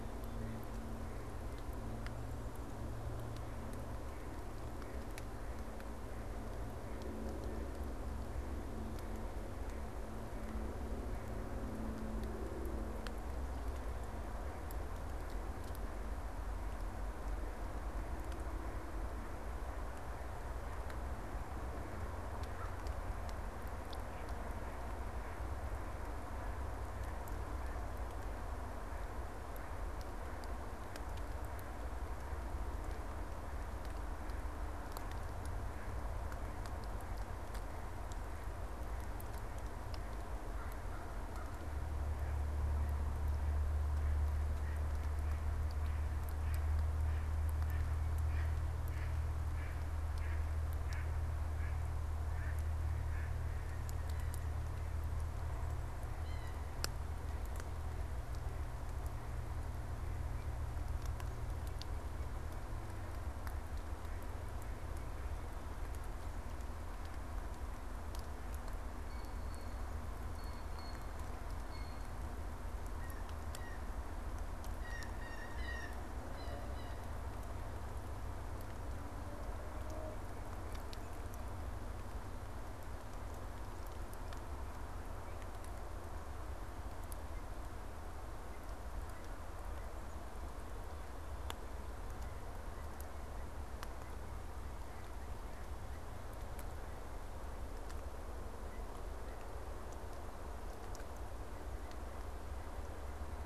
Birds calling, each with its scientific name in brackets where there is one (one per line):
Mallard (Anas platyrhynchos)
American Crow (Corvus brachyrhynchos)
Blue Jay (Cyanocitta cristata)